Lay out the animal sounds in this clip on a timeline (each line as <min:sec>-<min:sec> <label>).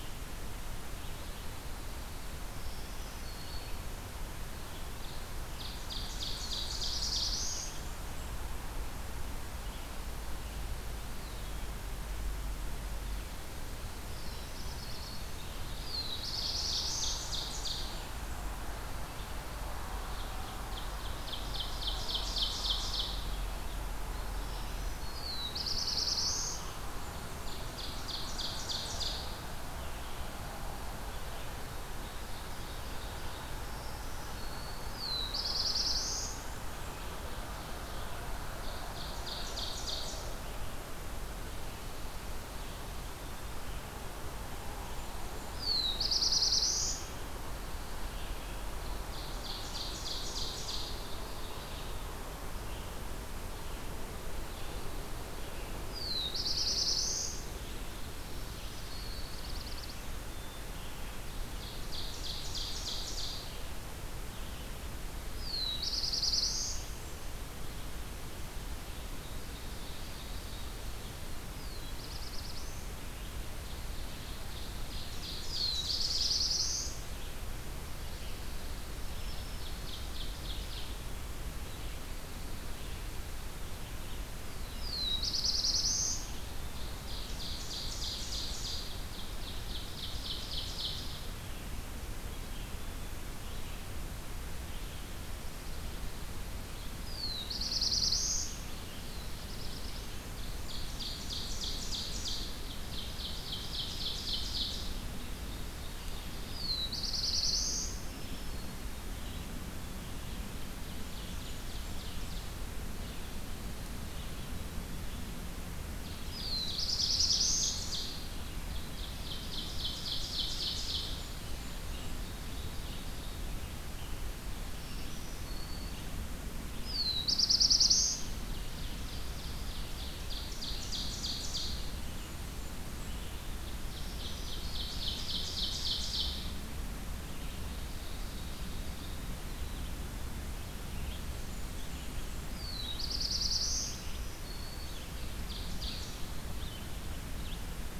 0:00.0-0:33.8 Red-eyed Vireo (Vireo olivaceus)
0:02.5-0:04.0 Black-throated Green Warbler (Setophaga virens)
0:04.9-0:07.4 Ovenbird (Seiurus aurocapilla)
0:06.3-0:07.8 Black-throated Blue Warbler (Setophaga caerulescens)
0:07.3-0:08.6 Blackburnian Warbler (Setophaga fusca)
0:10.8-0:11.8 Eastern Wood-Pewee (Contopus virens)
0:14.0-0:15.5 Black-throated Green Warbler (Setophaga virens)
0:14.0-0:15.3 Black-throated Blue Warbler (Setophaga caerulescens)
0:15.7-0:17.2 Black-throated Blue Warbler (Setophaga caerulescens)
0:16.8-0:18.1 Ovenbird (Seiurus aurocapilla)
0:17.5-0:18.5 Blackburnian Warbler (Setophaga fusca)
0:20.1-0:23.2 Ovenbird (Seiurus aurocapilla)
0:24.3-0:25.6 Black-throated Green Warbler (Setophaga virens)
0:25.0-0:26.7 Black-throated Blue Warbler (Setophaga caerulescens)
0:26.6-0:28.0 Blackburnian Warbler (Setophaga fusca)
0:27.2-0:29.3 Ovenbird (Seiurus aurocapilla)
0:31.8-0:33.6 Ovenbird (Seiurus aurocapilla)
0:33.4-0:35.0 Black-throated Green Warbler (Setophaga virens)
0:34.8-0:36.4 Black-throated Blue Warbler (Setophaga caerulescens)
0:36.7-0:40.3 Ovenbird (Seiurus aurocapilla)
0:40.4-1:35.1 Red-eyed Vireo (Vireo olivaceus)
0:44.5-0:46.1 Blackburnian Warbler (Setophaga fusca)
0:45.5-0:47.0 Black-throated Blue Warbler (Setophaga caerulescens)
0:49.1-0:50.9 Ovenbird (Seiurus aurocapilla)
0:55.8-0:57.4 Black-throated Blue Warbler (Setophaga caerulescens)
0:58.0-0:59.6 Black-throated Green Warbler (Setophaga virens)
0:58.6-1:00.2 Black-throated Blue Warbler (Setophaga caerulescens)
1:01.6-1:03.4 Ovenbird (Seiurus aurocapilla)
1:05.3-1:06.8 Black-throated Blue Warbler (Setophaga caerulescens)
1:08.8-1:11.4 Ovenbird (Seiurus aurocapilla)
1:11.4-1:12.9 Black-throated Blue Warbler (Setophaga caerulescens)
1:13.2-1:16.4 Ovenbird (Seiurus aurocapilla)
1:15.4-1:17.0 Black-throated Blue Warbler (Setophaga caerulescens)
1:15.5-1:17.3 Blackburnian Warbler (Setophaga fusca)
1:18.8-1:20.2 Black-throated Green Warbler (Setophaga virens)
1:19.4-1:21.0 Ovenbird (Seiurus aurocapilla)
1:24.3-1:26.4 Black-throated Blue Warbler (Setophaga caerulescens)
1:26.7-1:31.2 Ovenbird (Seiurus aurocapilla)
1:36.8-1:38.5 Black-throated Blue Warbler (Setophaga caerulescens)
1:38.5-2:28.0 Red-eyed Vireo (Vireo olivaceus)
1:39.0-1:40.4 Black-throated Blue Warbler (Setophaga caerulescens)
1:40.3-1:42.4 Blackburnian Warbler (Setophaga fusca)
1:40.5-1:45.1 Ovenbird (Seiurus aurocapilla)
1:46.4-1:48.0 Black-throated Blue Warbler (Setophaga caerulescens)
1:47.7-1:48.7 Black-throated Green Warbler (Setophaga virens)
1:50.8-1:52.7 Ovenbird (Seiurus aurocapilla)
1:51.1-1:52.5 Blackburnian Warbler (Setophaga fusca)
1:56.0-2:01.4 Ovenbird (Seiurus aurocapilla)
1:56.2-1:57.7 Black-throated Blue Warbler (Setophaga caerulescens)
2:01.1-2:02.3 Blackburnian Warbler (Setophaga fusca)
2:02.0-2:03.6 Ovenbird (Seiurus aurocapilla)
2:04.5-2:06.3 Black-throated Green Warbler (Setophaga virens)
2:06.7-2:08.4 Black-throated Blue Warbler (Setophaga caerulescens)
2:08.3-2:12.0 Ovenbird (Seiurus aurocapilla)
2:12.0-2:13.3 Blackburnian Warbler (Setophaga fusca)
2:13.8-2:15.3 Black-throated Green Warbler (Setophaga virens)
2:14.0-2:16.7 Ovenbird (Seiurus aurocapilla)
2:17.2-2:19.5 Ovenbird (Seiurus aurocapilla)
2:21.2-2:22.5 Blackburnian Warbler (Setophaga fusca)
2:22.5-2:24.1 Black-throated Blue Warbler (Setophaga caerulescens)
2:23.9-2:25.0 Black-throated Green Warbler (Setophaga virens)
2:25.3-2:26.4 Ovenbird (Seiurus aurocapilla)